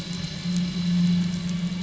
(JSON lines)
{"label": "anthrophony, boat engine", "recorder": "SoundTrap 500"}